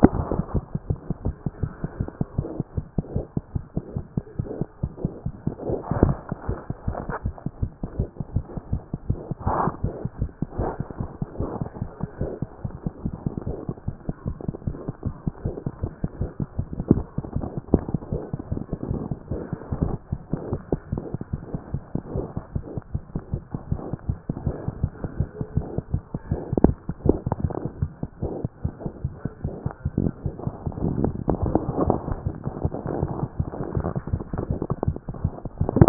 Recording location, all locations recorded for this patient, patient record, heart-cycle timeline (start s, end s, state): mitral valve (MV)
aortic valve (AV)+mitral valve (MV)
#Age: Infant
#Sex: Male
#Height: 59.0 cm
#Weight: 7.1 kg
#Pregnancy status: False
#Murmur: Absent
#Murmur locations: nan
#Most audible location: nan
#Systolic murmur timing: nan
#Systolic murmur shape: nan
#Systolic murmur grading: nan
#Systolic murmur pitch: nan
#Systolic murmur quality: nan
#Diastolic murmur timing: nan
#Diastolic murmur shape: nan
#Diastolic murmur grading: nan
#Diastolic murmur pitch: nan
#Diastolic murmur quality: nan
#Outcome: Abnormal
#Campaign: 2014 screening campaign
0.00	9.84	unannotated
9.84	9.94	S1
9.94	10.04	systole
10.04	10.10	S2
10.10	10.20	diastole
10.20	10.30	S1
10.30	10.42	systole
10.42	10.46	S2
10.46	10.60	diastole
10.60	10.70	S1
10.70	10.80	systole
10.80	10.86	S2
10.86	11.00	diastole
11.00	11.10	S1
11.10	11.20	systole
11.20	11.26	S2
11.26	11.40	diastole
11.40	11.50	S1
11.50	11.60	systole
11.60	11.68	S2
11.68	11.82	diastole
11.82	11.90	S1
11.90	12.02	systole
12.02	12.08	S2
12.08	12.20	diastole
12.20	12.30	S1
12.30	12.42	systole
12.42	12.50	S2
12.50	12.64	diastole
12.64	12.74	S1
12.74	12.84	systole
12.84	12.92	S2
12.92	13.04	diastole
13.04	13.14	S1
13.14	13.26	systole
13.26	13.32	S2
13.32	13.46	diastole
13.46	13.56	S1
13.56	13.68	systole
13.68	13.76	S2
13.76	13.88	diastole
13.88	13.96	S1
13.96	14.08	systole
14.08	14.14	S2
14.14	14.26	diastole
14.26	14.36	S1
14.36	14.46	systole
14.46	14.54	S2
14.54	14.66	diastole
14.66	14.76	S1
14.76	14.88	systole
14.88	14.92	S2
14.92	15.04	diastole
15.04	15.14	S1
15.14	15.26	systole
15.26	15.32	S2
15.32	15.44	diastole
15.44	15.54	S1
15.54	15.66	systole
15.66	15.72	S2
15.72	15.82	diastole
15.82	15.92	S1
15.92	16.02	systole
16.02	16.08	S2
16.08	16.20	diastole
16.20	16.30	S1
16.30	16.40	systole
16.40	16.48	S2
16.48	16.58	diastole
16.58	35.89	unannotated